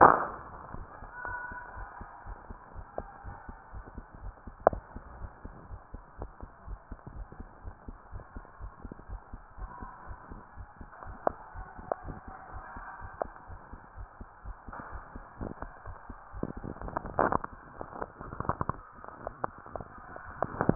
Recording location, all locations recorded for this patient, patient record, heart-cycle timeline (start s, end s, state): tricuspid valve (TV)
aortic valve (AV)+pulmonary valve (PV)+tricuspid valve (TV)+mitral valve (MV)
#Age: nan
#Sex: Female
#Height: nan
#Weight: nan
#Pregnancy status: True
#Murmur: Absent
#Murmur locations: nan
#Most audible location: nan
#Systolic murmur timing: nan
#Systolic murmur shape: nan
#Systolic murmur grading: nan
#Systolic murmur pitch: nan
#Systolic murmur quality: nan
#Diastolic murmur timing: nan
#Diastolic murmur shape: nan
#Diastolic murmur grading: nan
#Diastolic murmur pitch: nan
#Diastolic murmur quality: nan
#Outcome: Normal
#Campaign: 2015 screening campaign
0.00	1.54	unannotated
1.54	1.56	S2
1.56	1.74	diastole
1.74	1.88	S1
1.88	1.97	systole
1.97	2.08	S2
2.08	2.25	diastole
2.25	2.38	S1
2.38	2.46	systole
2.46	2.58	S2
2.58	2.76	diastole
2.76	2.88	S1
2.88	2.96	systole
2.96	3.10	S2
3.10	3.26	diastole
3.26	3.38	S1
3.38	3.46	systole
3.46	3.56	S2
3.56	3.72	diastole
3.72	3.86	S1
3.86	3.94	systole
3.94	4.06	S2
4.06	4.22	diastole
4.22	4.34	S1
4.34	4.44	systole
4.44	4.54	S2
4.54	4.68	diastole
4.68	4.84	S1
4.84	4.92	systole
4.92	5.04	S2
5.04	5.18	diastole
5.18	5.30	S1
5.30	5.42	systole
5.42	5.54	S2
5.54	5.70	diastole
5.70	5.80	S1
5.80	5.92	systole
5.92	6.02	S2
6.02	6.18	diastole
6.18	6.32	S1
6.32	6.40	systole
6.40	6.50	S2
6.50	6.66	diastole
6.66	6.80	S1
6.80	6.90	systole
6.90	7.00	S2
7.00	7.14	diastole
7.14	7.28	S1
7.28	7.36	systole
7.36	7.48	S2
7.48	7.64	diastole
7.64	7.78	S1
7.78	7.86	systole
7.86	7.98	S2
7.98	8.12	diastole
8.12	8.24	S1
8.24	8.34	systole
8.34	8.44	S2
8.44	8.60	diastole
8.60	8.72	S1
8.72	8.82	systole
8.82	8.96	S2
8.96	9.10	diastole
9.10	9.22	S1
9.22	9.30	systole
9.30	9.42	S2
9.42	9.56	diastole
9.56	20.75	unannotated